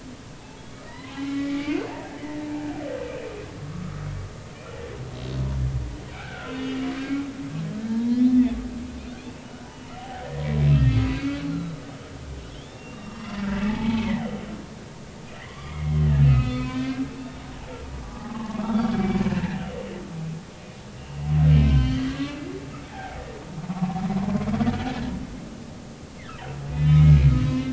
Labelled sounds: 0.4	2.5	humpback whale, 0.80 to 3.5 kHz
3.6	4.1	humpback whale, 1.1 to 1.4 kHz
6.1	7.3	humpback whale, 1.3 to 2.9 kHz
7.8	8.6	humpback whale, 0.86 to 3.6 kHz
10.7	11.8	humpback whale, 1.2 to 4.4 kHz
12.2	14.2	humpback whale, 0.83 to 5.6 kHz
15.5	17.6	humpback whale, 0.83 to 4.4 kHz
18.0	19.6	humpback whale, 0.80 to 3.0 kHz
21.0	22.4	humpback whale, 1.1 to 4.6 kHz
23.7	24.0	humpback whale, 0.80 to 1.2 kHz
26.7	27.2	humpback whale, 2.1 to 3.9 kHz

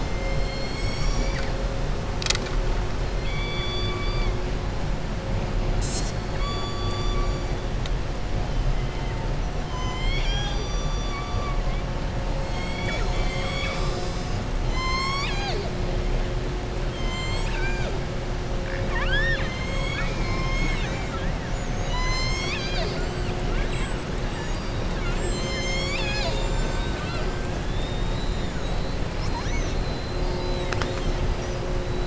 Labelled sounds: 3.1	4.3	killer whale, southern resident, 2.0 to 4.7 kHz
6.3	7.4	killer whale, southern resident, 1.1 to 7.9 kHz
10.1	11.6	killer whale, southern resident, 0.78 to 7.4 kHz
16.9	17.9	killer whale, southern resident, 0.66 to 8.0 kHz
27.6	28.5	killer whale, southern resident, 3.4 to 4.4 kHz

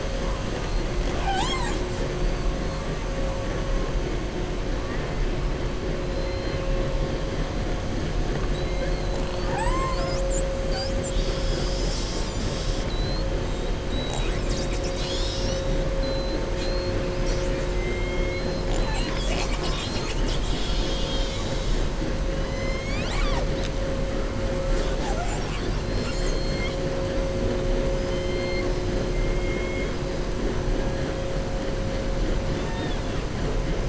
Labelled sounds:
6.0	6.7	killer whale, southern resident, 2.0 to 5.1 kHz
22.4	23.5	killer whale, southern resident, 0.61 to 7.8 kHz
32.5	33.2	killer whale, southern resident, 0.91 to 3.7 kHz

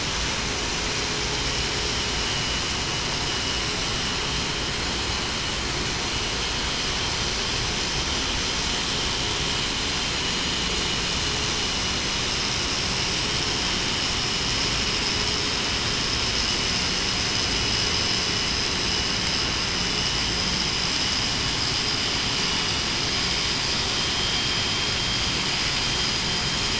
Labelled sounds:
24.1	24.5	vessel noise, 3.16 to 3.23 kHz

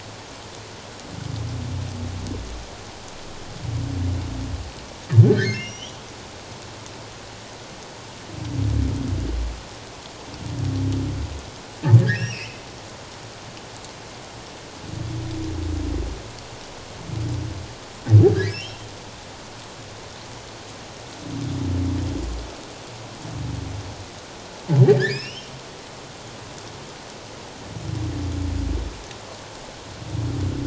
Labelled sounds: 5.3	6.0	humpback whale, 1.4 to 6.2 kHz
12.0	12.7	humpback whale, 1.5 to 5.8 kHz
18.3	18.9	humpback whale, 1.5 to 5.7 kHz
24.8	25.5	humpback whale, 1.5 to 6.0 kHz

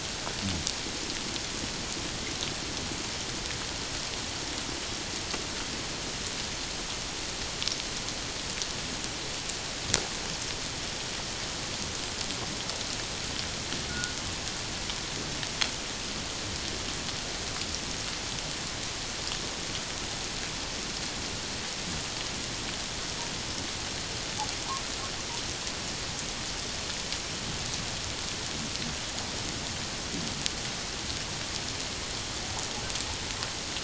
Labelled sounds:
13.9	14.1	humpback whale, 1.4 to 1.6 kHz

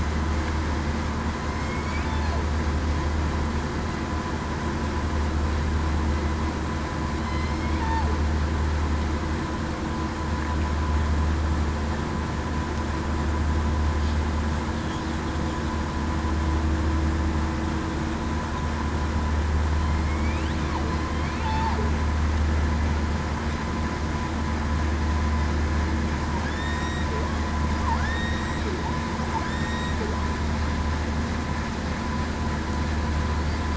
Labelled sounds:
7.2	7.7	killer whale, southern resident, 2.0 to 4.3 kHz
20.0	20.5	killer whale, southern resident, 2.1 to 2.9 kHz
21.4	21.8	killer whale, southern resident, 0.73 to 0.94 kHz
26.5	27.0	killer whale, southern resident, 1.8 to 7.5 kHz
28.0	28.6	killer whale, southern resident, 1.6 to 1.9 kHz
29.4	29.9	killer whale, southern resident, 1.8 to 3.8 kHz

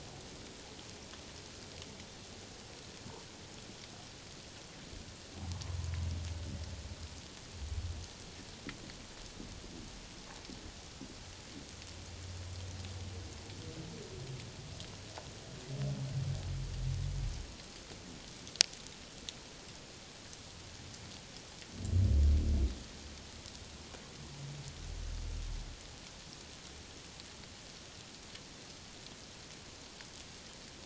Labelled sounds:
5.5	5.8	humpback whale, 0.84 to 1.2 kHz

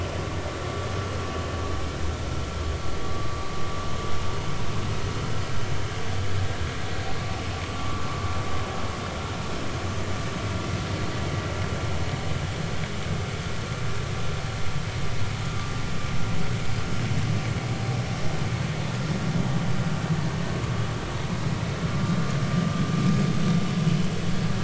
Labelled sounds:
7.8	8.0	vessel noise, 1.0 to 1.3 kHz

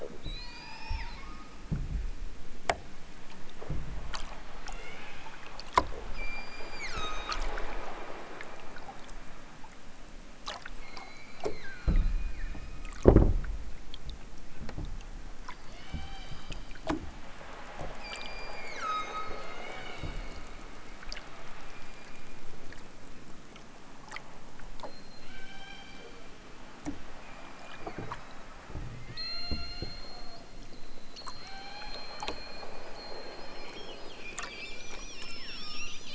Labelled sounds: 0.2	1.3	killer whale, southern Alaska resident, 0.50 to 8.0 kHz
4.6	5.3	killer whale, southern Alaska resident, 0.92 to 5.8 kHz
6.1	7.3	killer whale, southern Alaska resident, 0.87 to 8.0 kHz
10.8	13.1	killer whale, southern Alaska resident, 0.83 to 8.0 kHz
15.6	16.7	killer whale, southern Alaska resident, 0.46 to 6.9 kHz
17.9	20.3	killer whale, southern Alaska resident, 0.92 to 8.0 kHz
21.7	22.5	killer whale, southern Alaska resident, 2.5 to 7.4 kHz
24.8	26.4	killer whale, southern Alaska resident, 0.50 to 8.0 kHz
27.1	28.4	killer whale, southern Alaska resident, 1.2 to 8.0 kHz
29.0	30.2	killer whale, southern Alaska resident, 0.73 to 6.7 kHz
31.3	32.2	killer whale, southern Alaska resident, 0.50 to 6.2 kHz
34.1	36.1	killer whale, southern Alaska resident, 0.83 to 2.7 kHz

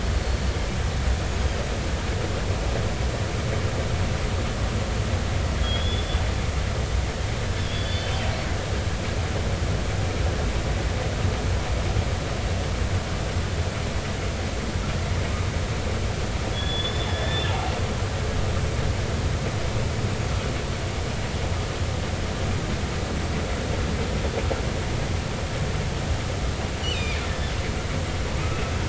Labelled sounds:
5.6	6.2	killer whale, northern resident, 3.2 to 3.5 kHz
7.7	8.1	killer whale, northern resident, 3.0 to 4.8 kHz
16.5	17.5	killer whale, northern resident, 1.7 to 5.3 kHz
26.8	27.2	killer whale, northern resident, 2.1 to 7.5 kHz

